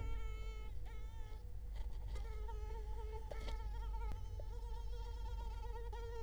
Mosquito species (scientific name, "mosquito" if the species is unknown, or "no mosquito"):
Culex quinquefasciatus